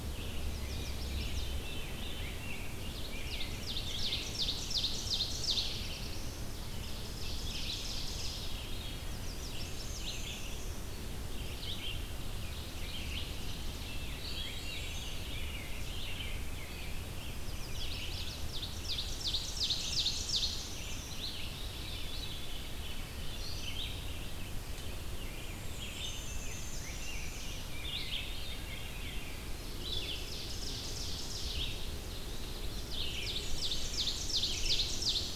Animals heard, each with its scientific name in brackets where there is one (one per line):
Rose-breasted Grosbeak (Pheucticus ludovicianus)
Black-and-white Warbler (Mniotilta varia)
Veery (Catharus fuscescens)
Ovenbird (Seiurus aurocapilla)
Black-throated Blue Warbler (Setophaga caerulescens)
Red-eyed Vireo (Vireo olivaceus)
Chestnut-sided Warbler (Setophaga pensylvanica)
Blackburnian Warbler (Setophaga fusca)